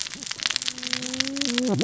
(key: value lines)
label: biophony, cascading saw
recorder: SoundTrap 600 or HydroMoth